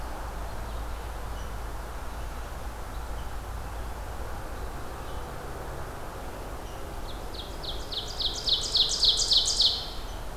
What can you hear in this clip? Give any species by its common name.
Rose-breasted Grosbeak, Ovenbird